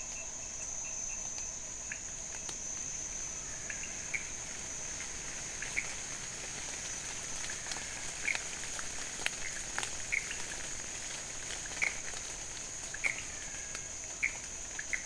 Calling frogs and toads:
Leptodactylus podicipinus (Leptodactylidae), Pithecopus azureus (Hylidae), Physalaemus albonotatus (Leptodactylidae)
Cerrado, Brazil, 12:00am

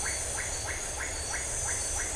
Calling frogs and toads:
Leptodactylus notoaktites (Leptodactylidae)
Atlantic Forest, Brazil, 11:00pm

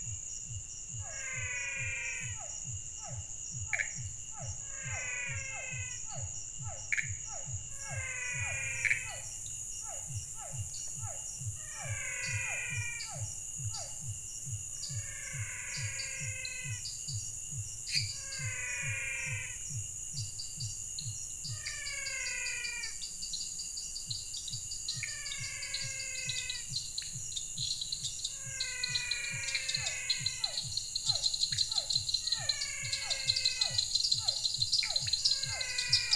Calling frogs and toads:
Physalaemus albonotatus (Leptodactylidae), Physalaemus cuvieri (Leptodactylidae), Pithecopus azureus (Hylidae), Dendropsophus nanus (Hylidae), Leptodactylus podicipinus (Leptodactylidae)
Cerrado, Brazil, 7:30pm

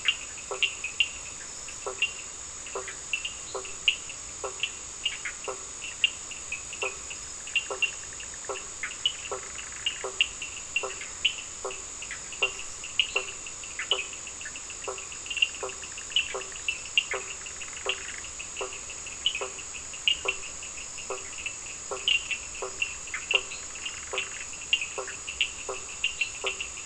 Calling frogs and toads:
Boana faber (Hylidae), Sphaenorhynchus surdus (Hylidae), Boana leptolineata (Hylidae), Boana bischoffi (Hylidae)
Atlantic Forest, Brazil, 9:15pm

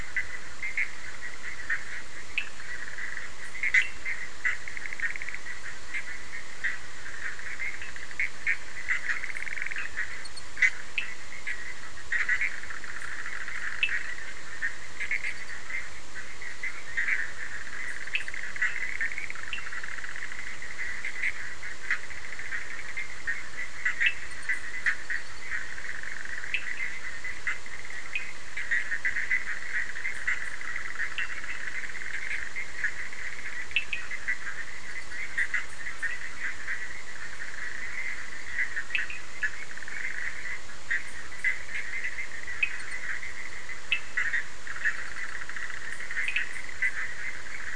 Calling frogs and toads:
Boana bischoffi (Hylidae), Sphaenorhynchus surdus (Hylidae)
Atlantic Forest, Brazil, 11:30pm

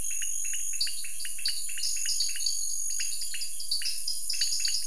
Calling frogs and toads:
Leptodactylus podicipinus (Leptodactylidae), Dendropsophus nanus (Hylidae)
Cerrado, Brazil, 7:30pm

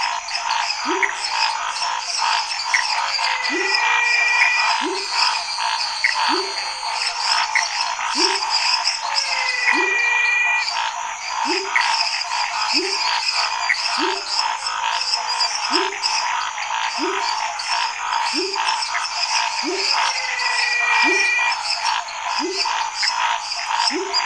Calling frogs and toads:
Dendropsophus minutus (Hylidae), Dendropsophus nanus (Hylidae), Scinax fuscovarius (Hylidae), Pithecopus azureus (Hylidae), Leptodactylus labyrinthicus (Leptodactylidae), Physalaemus albonotatus (Leptodactylidae), Elachistocleis matogrosso (Microhylidae)
Cerrado, Brazil, 10:15pm

